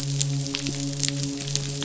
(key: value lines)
label: biophony, midshipman
recorder: SoundTrap 500